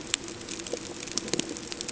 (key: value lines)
label: ambient
recorder: HydroMoth